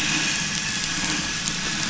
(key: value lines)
label: anthrophony, boat engine
recorder: SoundTrap 500